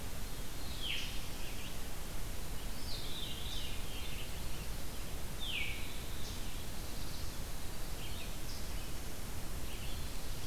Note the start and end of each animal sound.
[0.68, 1.35] Veery (Catharus fuscescens)
[1.31, 10.46] Red-eyed Vireo (Vireo olivaceus)
[2.59, 3.87] Veery (Catharus fuscescens)
[5.27, 6.03] Veery (Catharus fuscescens)
[6.08, 7.56] Black-throated Blue Warbler (Setophaga caerulescens)
[9.43, 10.46] Black-throated Blue Warbler (Setophaga caerulescens)

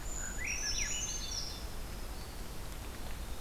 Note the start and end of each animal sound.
[0.00, 1.70] Brown Creeper (Certhia americana)
[0.16, 1.71] Swainson's Thrush (Catharus ustulatus)
[1.08, 3.40] Winter Wren (Troglodytes hiemalis)

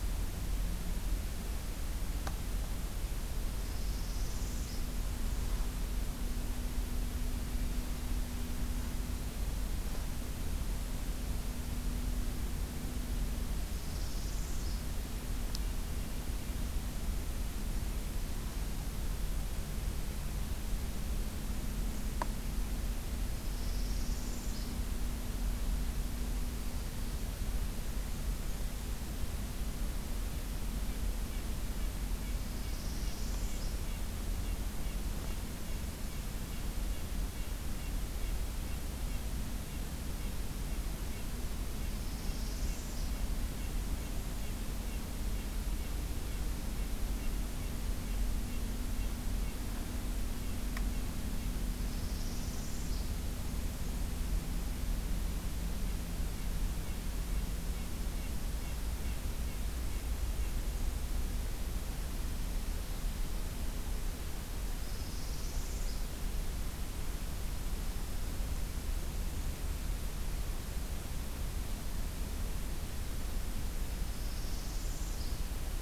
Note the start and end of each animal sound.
[3.41, 4.85] Northern Parula (Setophaga americana)
[4.43, 5.91] Blackburnian Warbler (Setophaga fusca)
[13.35, 14.98] Northern Parula (Setophaga americana)
[23.38, 24.85] Northern Parula (Setophaga americana)
[30.30, 60.55] Red-breasted Nuthatch (Sitta canadensis)
[32.29, 33.94] Northern Parula (Setophaga americana)
[41.73, 43.26] Northern Parula (Setophaga americana)
[51.74, 53.20] Northern Parula (Setophaga americana)
[64.68, 66.26] Northern Parula (Setophaga americana)
[73.63, 75.58] Northern Parula (Setophaga americana)

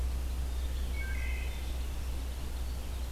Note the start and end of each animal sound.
[0.65, 1.72] Wood Thrush (Hylocichla mustelina)

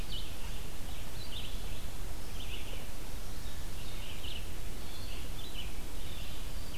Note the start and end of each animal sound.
[0.00, 6.77] Red-eyed Vireo (Vireo olivaceus)

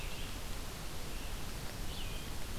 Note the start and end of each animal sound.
[0.00, 2.58] Red-eyed Vireo (Vireo olivaceus)

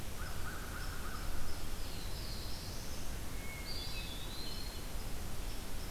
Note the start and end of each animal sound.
[0.03, 1.57] American Crow (Corvus brachyrhynchos)
[1.59, 3.38] Black-throated Blue Warbler (Setophaga caerulescens)
[3.23, 4.32] Hermit Thrush (Catharus guttatus)
[3.47, 5.05] Eastern Wood-Pewee (Contopus virens)

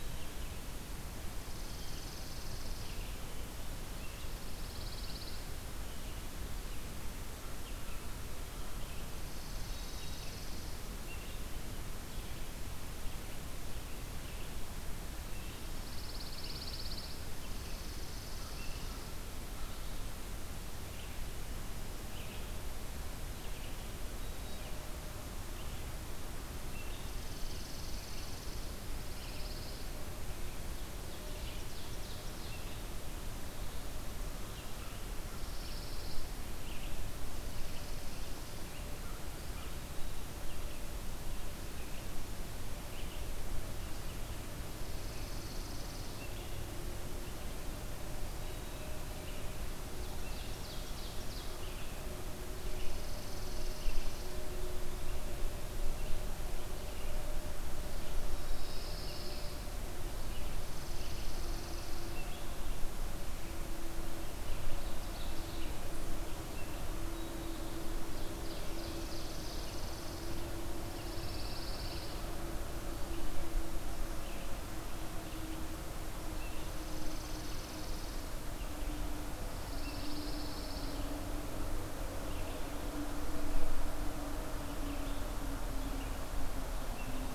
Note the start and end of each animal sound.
[0.00, 16.87] Red-eyed Vireo (Vireo olivaceus)
[1.31, 3.04] Chipping Sparrow (Spizella passerina)
[4.00, 5.44] Pine Warbler (Setophaga pinus)
[9.01, 10.77] Chipping Sparrow (Spizella passerina)
[9.65, 10.59] Black-capped Chickadee (Poecile atricapillus)
[15.57, 17.25] Pine Warbler (Setophaga pinus)
[17.21, 19.31] Chipping Sparrow (Spizella passerina)
[17.35, 87.32] Red-eyed Vireo (Vireo olivaceus)
[26.82, 28.95] Chipping Sparrow (Spizella passerina)
[28.77, 29.90] Pine Warbler (Setophaga pinus)
[30.70, 32.93] Ovenbird (Seiurus aurocapilla)
[35.13, 36.70] Pine Warbler (Setophaga pinus)
[37.15, 38.77] Chipping Sparrow (Spizella passerina)
[44.52, 46.30] Chipping Sparrow (Spizella passerina)
[49.80, 51.84] Ovenbird (Seiurus aurocapilla)
[52.39, 54.38] Chipping Sparrow (Spizella passerina)
[58.24, 59.60] Pine Warbler (Setophaga pinus)
[60.26, 62.23] Chipping Sparrow (Spizella passerina)
[64.42, 65.89] Ovenbird (Seiurus aurocapilla)
[67.73, 69.74] Ovenbird (Seiurus aurocapilla)
[68.56, 70.56] Chipping Sparrow (Spizella passerina)
[70.70, 72.33] Pine Warbler (Setophaga pinus)
[76.36, 78.29] Chipping Sparrow (Spizella passerina)
[79.24, 81.21] Pine Warbler (Setophaga pinus)

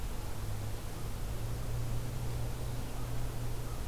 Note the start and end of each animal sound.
[0.00, 3.87] American Crow (Corvus brachyrhynchos)

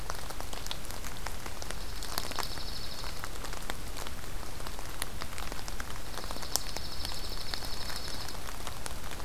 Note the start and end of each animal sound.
[1.66, 3.18] Dark-eyed Junco (Junco hyemalis)
[6.06, 8.31] Dark-eyed Junco (Junco hyemalis)

